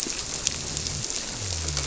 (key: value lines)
label: biophony
recorder: SoundTrap 300